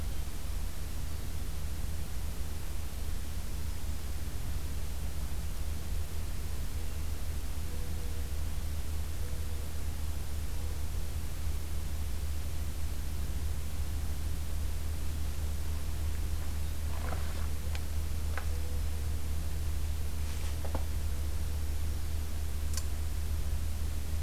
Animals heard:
Black-throated Green Warbler (Setophaga virens)

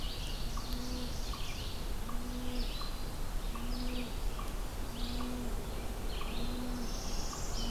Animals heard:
Ovenbird (Seiurus aurocapilla), Northern Parula (Setophaga americana), unknown mammal, Red-eyed Vireo (Vireo olivaceus)

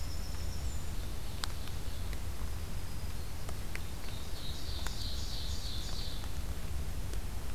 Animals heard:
Black-throated Green Warbler (Setophaga virens), Ovenbird (Seiurus aurocapilla), Winter Wren (Troglodytes hiemalis)

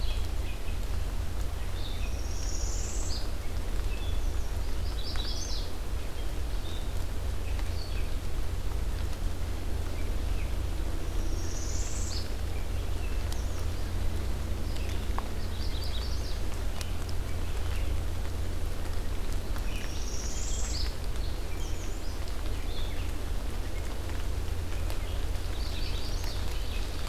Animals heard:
Red-eyed Vireo (Vireo olivaceus), American Redstart (Setophaga ruticilla), Ovenbird (Seiurus aurocapilla), Magnolia Warbler (Setophaga magnolia), Northern Parula (Setophaga americana)

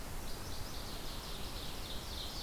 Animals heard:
Northern Waterthrush (Parkesia noveboracensis), Ovenbird (Seiurus aurocapilla)

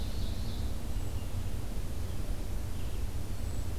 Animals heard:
Ovenbird (Seiurus aurocapilla), Red-eyed Vireo (Vireo olivaceus), Hermit Thrush (Catharus guttatus)

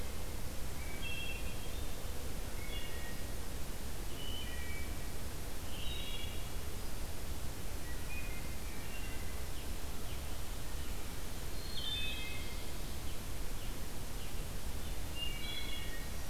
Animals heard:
Northern Cardinal (Cardinalis cardinalis), Wood Thrush (Hylocichla mustelina)

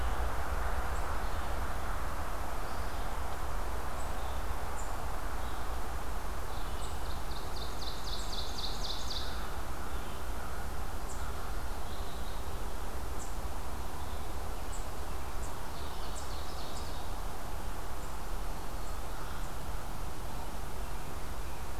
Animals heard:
American Crow (Corvus brachyrhynchos), Red-eyed Vireo (Vireo olivaceus), Ovenbird (Seiurus aurocapilla)

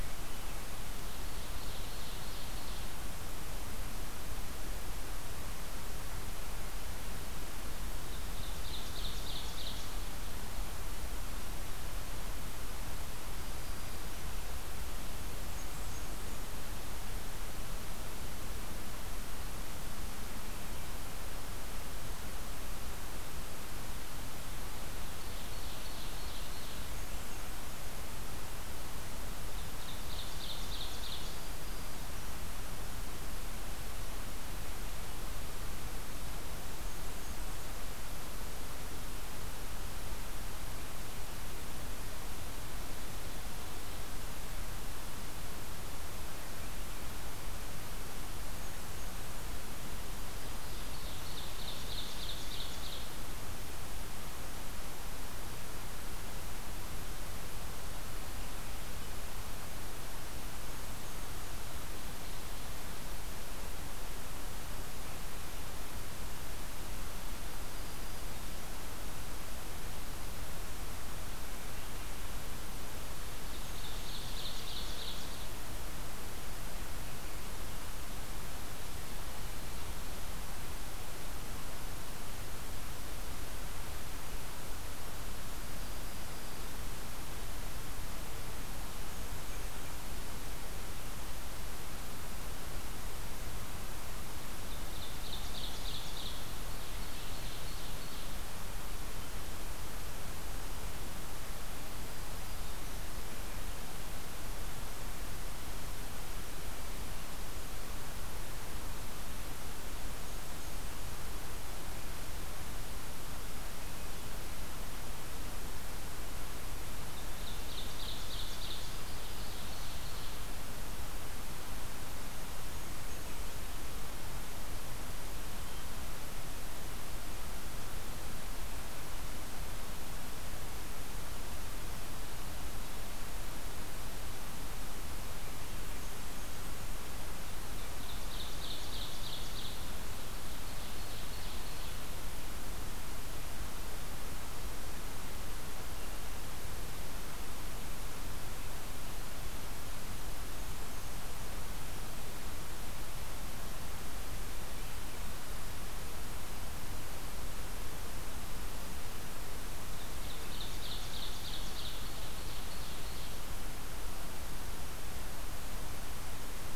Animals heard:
Blackburnian Warbler (Setophaga fusca), Black-throated Green Warbler (Setophaga virens), Ovenbird (Seiurus aurocapilla)

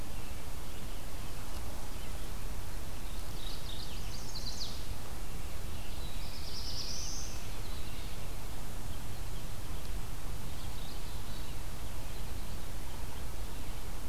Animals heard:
Chestnut-sided Warbler (Setophaga pensylvanica), Mourning Warbler (Geothlypis philadelphia), Black-throated Blue Warbler (Setophaga caerulescens), American Robin (Turdus migratorius)

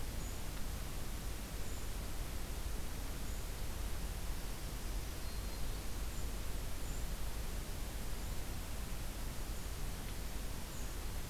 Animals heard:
Golden-crowned Kinglet (Regulus satrapa), Black-throated Green Warbler (Setophaga virens)

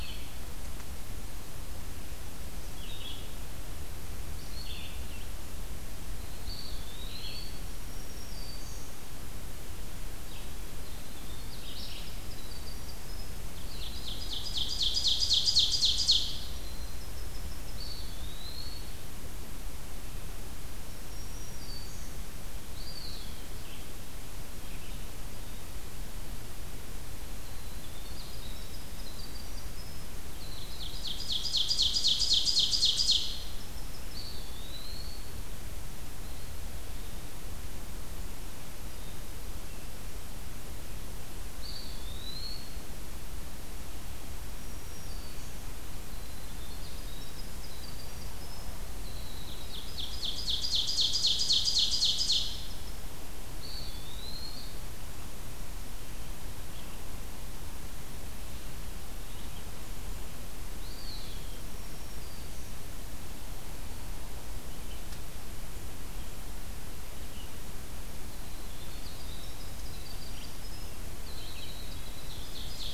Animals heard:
Winter Wren (Troglodytes hiemalis), Black-throated Green Warbler (Setophaga virens), Ovenbird (Seiurus aurocapilla), Red-eyed Vireo (Vireo olivaceus), Eastern Wood-Pewee (Contopus virens)

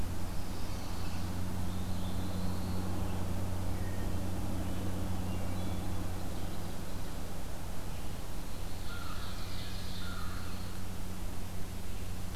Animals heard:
Chestnut-sided Warbler (Setophaga pensylvanica), Wood Thrush (Hylocichla mustelina), American Crow (Corvus brachyrhynchos), Ovenbird (Seiurus aurocapilla), Black-throated Blue Warbler (Setophaga caerulescens)

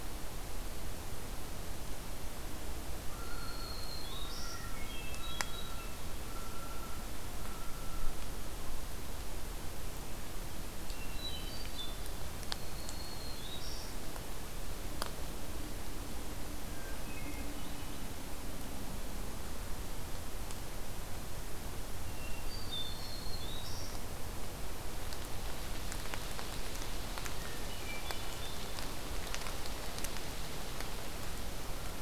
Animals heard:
Hermit Thrush (Catharus guttatus), Common Loon (Gavia immer), Black-throated Green Warbler (Setophaga virens)

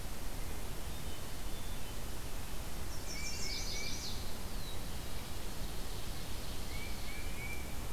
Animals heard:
Black-throated Blue Warbler (Setophaga caerulescens), Ovenbird (Seiurus aurocapilla), Chestnut-sided Warbler (Setophaga pensylvanica), Tufted Titmouse (Baeolophus bicolor)

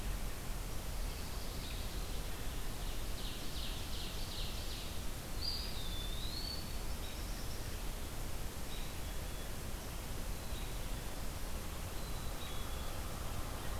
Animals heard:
Black-capped Chickadee (Poecile atricapillus), Ovenbird (Seiurus aurocapilla), Eastern Wood-Pewee (Contopus virens), Black-throated Blue Warbler (Setophaga caerulescens), American Robin (Turdus migratorius)

